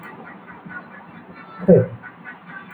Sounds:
Sigh